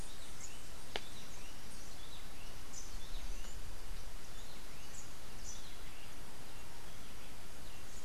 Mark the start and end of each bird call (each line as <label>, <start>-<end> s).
Rufous-breasted Wren (Pheugopedius rutilus), 0.0-8.0 s